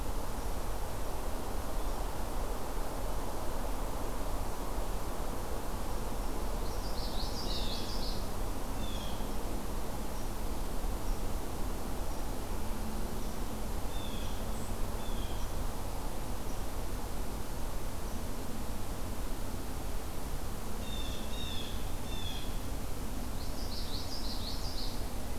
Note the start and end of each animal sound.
6.5s-8.3s: Common Yellowthroat (Geothlypis trichas)
8.7s-9.4s: Blue Jay (Cyanocitta cristata)
13.8s-14.4s: Blue Jay (Cyanocitta cristata)
15.0s-15.5s: Blue Jay (Cyanocitta cristata)
20.7s-22.5s: Blue Jay (Cyanocitta cristata)
23.4s-25.0s: Common Yellowthroat (Geothlypis trichas)

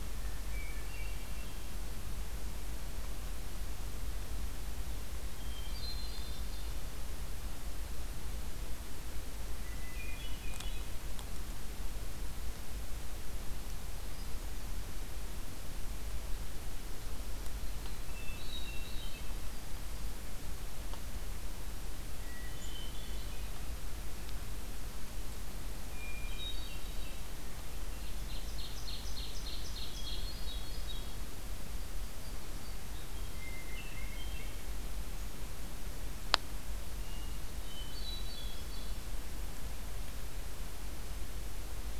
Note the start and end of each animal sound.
0.0s-1.8s: Hermit Thrush (Catharus guttatus)
5.1s-6.9s: Hermit Thrush (Catharus guttatus)
9.5s-11.0s: Hermit Thrush (Catharus guttatus)
14.0s-15.1s: Hermit Thrush (Catharus guttatus)
18.0s-19.4s: Hermit Thrush (Catharus guttatus)
22.0s-23.8s: Hermit Thrush (Catharus guttatus)
25.8s-27.4s: Hermit Thrush (Catharus guttatus)
28.0s-30.3s: Ovenbird (Seiurus aurocapilla)
30.0s-31.2s: Hermit Thrush (Catharus guttatus)
31.5s-32.9s: Yellow-rumped Warbler (Setophaga coronata)
32.6s-34.8s: Hermit Thrush (Catharus guttatus)
36.9s-39.0s: Hermit Thrush (Catharus guttatus)

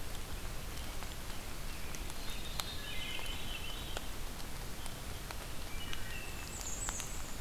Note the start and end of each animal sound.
2.2s-4.4s: Veery (Catharus fuscescens)
2.8s-3.4s: Wood Thrush (Hylocichla mustelina)
5.6s-6.5s: Wood Thrush (Hylocichla mustelina)
6.2s-7.4s: Bay-breasted Warbler (Setophaga castanea)

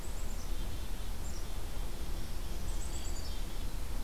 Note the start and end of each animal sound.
0.0s-2.2s: Black-capped Chickadee (Poecile atricapillus)
2.0s-3.4s: Black-throated Green Warbler (Setophaga virens)
2.6s-4.0s: Black-capped Chickadee (Poecile atricapillus)

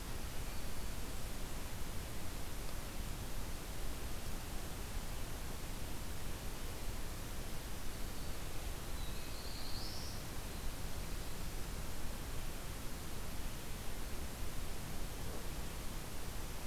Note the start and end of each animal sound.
0.3s-1.1s: Black-throated Green Warbler (Setophaga virens)
8.8s-10.3s: Black-throated Blue Warbler (Setophaga caerulescens)

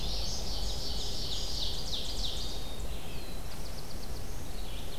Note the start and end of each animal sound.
0.0s-2.7s: Ovenbird (Seiurus aurocapilla)
0.0s-5.0s: Red-eyed Vireo (Vireo olivaceus)
2.5s-4.4s: Black-throated Blue Warbler (Setophaga caerulescens)

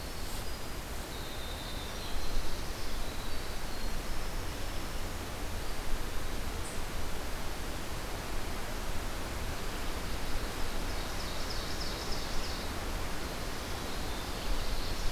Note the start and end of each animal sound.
0.0s-5.3s: Winter Wren (Troglodytes hiemalis)
10.4s-12.6s: Ovenbird (Seiurus aurocapilla)

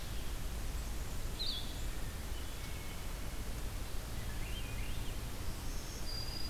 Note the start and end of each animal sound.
1.2s-1.7s: Blue-headed Vireo (Vireo solitarius)
4.1s-5.2s: Swainson's Thrush (Catharus ustulatus)
5.1s-6.5s: Black-throated Green Warbler (Setophaga virens)

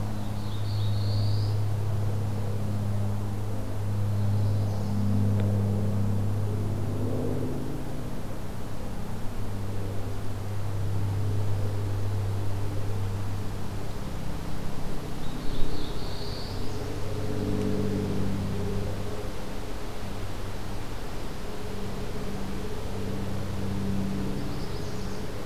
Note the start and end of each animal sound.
0.0s-1.6s: Black-throated Blue Warbler (Setophaga caerulescens)
3.8s-5.2s: Chestnut-sided Warbler (Setophaga pensylvanica)
15.0s-16.8s: Black-throated Blue Warbler (Setophaga caerulescens)
24.2s-25.3s: Chestnut-sided Warbler (Setophaga pensylvanica)

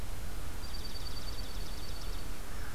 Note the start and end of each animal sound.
0.4s-2.4s: Dark-eyed Junco (Junco hyemalis)

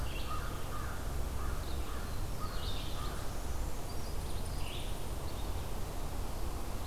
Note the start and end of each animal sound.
0.0s-3.3s: American Crow (Corvus brachyrhynchos)
0.0s-6.9s: Red-eyed Vireo (Vireo olivaceus)
1.6s-3.6s: Black-throated Blue Warbler (Setophaga caerulescens)
2.9s-4.3s: Brown Creeper (Certhia americana)

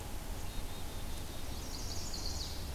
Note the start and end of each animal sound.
0.3s-1.5s: Black-capped Chickadee (Poecile atricapillus)
1.4s-2.7s: Chestnut-sided Warbler (Setophaga pensylvanica)

